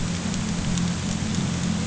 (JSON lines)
{"label": "anthrophony, boat engine", "recorder": "HydroMoth"}